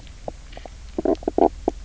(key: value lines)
label: biophony, knock croak
recorder: SoundTrap 300